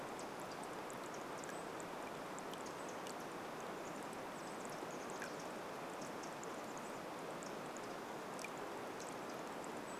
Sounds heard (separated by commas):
Pacific Wren call, Chestnut-backed Chickadee call, Brown Creeper call